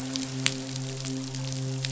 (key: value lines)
label: biophony, midshipman
recorder: SoundTrap 500